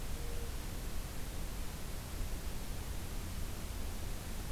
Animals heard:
forest ambience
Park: Acadia National Park